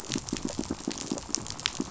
{"label": "biophony, pulse", "recorder": "SoundTrap 500"}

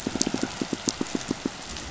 {"label": "biophony, pulse", "recorder": "SoundTrap 500"}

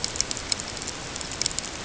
{"label": "ambient", "recorder": "HydroMoth"}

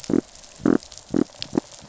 {"label": "biophony", "recorder": "SoundTrap 500"}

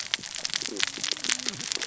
{"label": "biophony, cascading saw", "recorder": "SoundTrap 600 or HydroMoth"}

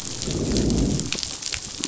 {"label": "biophony, growl", "recorder": "SoundTrap 500"}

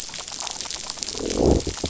{"label": "biophony, growl", "recorder": "SoundTrap 500"}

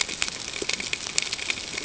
{"label": "ambient", "recorder": "HydroMoth"}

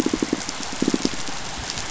{"label": "biophony, pulse", "recorder": "SoundTrap 500"}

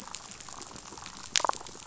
{"label": "biophony, damselfish", "recorder": "SoundTrap 500"}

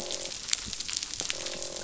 {"label": "biophony, croak", "recorder": "SoundTrap 500"}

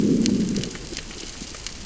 {"label": "biophony, growl", "recorder": "SoundTrap 600 or HydroMoth"}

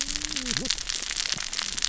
{"label": "biophony, cascading saw", "recorder": "SoundTrap 600 or HydroMoth"}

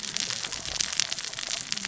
{"label": "biophony, cascading saw", "recorder": "SoundTrap 600 or HydroMoth"}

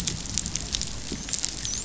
{"label": "biophony, dolphin", "recorder": "SoundTrap 500"}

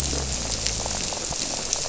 {"label": "biophony", "recorder": "SoundTrap 300"}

